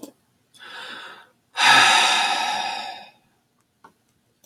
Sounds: Sigh